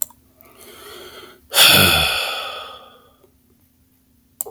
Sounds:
Sigh